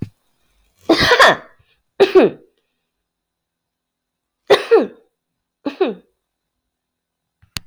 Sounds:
Sneeze